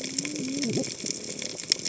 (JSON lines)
{"label": "biophony, cascading saw", "recorder": "HydroMoth"}